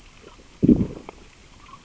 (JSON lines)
{"label": "biophony, growl", "recorder": "SoundTrap 600 or HydroMoth"}